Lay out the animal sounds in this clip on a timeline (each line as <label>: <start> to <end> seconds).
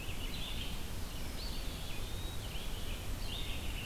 Red-eyed Vireo (Vireo olivaceus): 0.0 to 3.9 seconds
Eastern Wood-Pewee (Contopus virens): 1.2 to 2.6 seconds
Rose-breasted Grosbeak (Pheucticus ludovicianus): 2.1 to 3.9 seconds